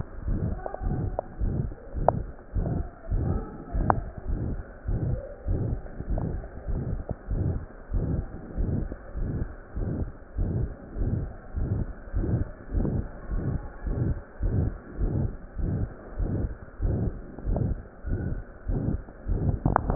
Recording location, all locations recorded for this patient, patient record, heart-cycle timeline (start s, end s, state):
pulmonary valve (PV)
aortic valve (AV)+pulmonary valve (PV)+tricuspid valve (TV)+mitral valve (MV)
#Age: Adolescent
#Sex: Male
#Height: 153.0 cm
#Weight: 53.9 kg
#Pregnancy status: False
#Murmur: Present
#Murmur locations: aortic valve (AV)+mitral valve (MV)+pulmonary valve (PV)+tricuspid valve (TV)
#Most audible location: tricuspid valve (TV)
#Systolic murmur timing: Holosystolic
#Systolic murmur shape: Plateau
#Systolic murmur grading: III/VI or higher
#Systolic murmur pitch: High
#Systolic murmur quality: Harsh
#Diastolic murmur timing: nan
#Diastolic murmur shape: nan
#Diastolic murmur grading: nan
#Diastolic murmur pitch: nan
#Diastolic murmur quality: nan
#Outcome: Abnormal
#Campaign: 2015 screening campaign
0.00	4.06	unannotated
4.06	4.28	diastole
4.28	4.40	S1
4.40	4.52	systole
4.52	4.63	S2
4.63	4.88	diastole
4.88	5.00	S1
5.00	5.09	systole
5.09	5.18	S2
5.18	5.44	diastole
5.44	5.60	S1
5.60	5.70	systole
5.70	5.80	S2
5.80	6.08	diastole
6.08	6.22	S1
6.22	6.32	systole
6.32	6.42	S2
6.42	6.68	diastole
6.68	6.82	S1
6.82	6.88	systole
6.88	7.00	S2
7.00	7.30	diastole
7.30	7.42	S1
7.42	7.48	systole
7.48	7.62	S2
7.62	7.92	diastole
7.92	8.08	S1
8.08	8.16	systole
8.16	8.30	S2
8.30	8.58	diastole
8.58	8.68	S1
8.68	8.78	systole
8.78	8.86	S2
8.86	9.16	diastole
9.16	9.30	S1
9.30	9.36	systole
9.36	9.46	S2
9.46	9.76	diastole
9.76	9.88	S1
9.88	9.98	systole
9.98	10.10	S2
10.10	10.36	diastole
10.36	10.50	S1
10.50	10.56	systole
10.56	10.70	S2
10.70	10.96	diastole
10.96	11.12	S1
11.12	11.18	systole
11.18	11.28	S2
11.28	11.54	diastole
11.54	11.68	S1
11.68	11.76	systole
11.76	11.88	S2
11.88	12.14	diastole
12.14	12.27	S1
12.27	12.36	systole
12.36	12.48	S2
12.48	12.74	diastole
12.74	12.86	S1
12.86	12.92	systole
12.92	13.06	S2
13.06	13.32	diastole
13.32	13.42	S1
13.42	13.48	systole
13.48	13.60	S2
13.60	13.84	diastole
13.84	13.96	S1
13.96	14.06	systole
14.06	14.15	S2
14.15	14.40	diastole
14.40	14.54	S1
14.54	14.62	systole
14.62	14.74	S2
14.74	14.97	diastole
14.97	15.12	S1
15.12	15.21	systole
15.21	15.36	S2
15.36	15.57	diastole
15.57	15.71	S1
15.71	15.80	systole
15.80	15.90	S2
15.90	16.20	diastole
16.20	16.30	S1
16.30	16.41	systole
16.41	16.52	S2
16.52	16.80	diastole
16.80	16.92	S1
16.92	17.03	systole
17.03	17.12	S2
17.12	17.45	diastole
17.45	17.56	S1
17.56	17.67	systole
17.67	17.78	S2
17.78	18.08	diastole
18.08	18.18	S1
18.18	18.29	systole
18.29	18.39	S2
18.39	18.68	diastole
18.68	18.78	S1
18.78	18.92	systole
18.92	18.99	S2
18.99	19.18	diastole
19.18	19.95	unannotated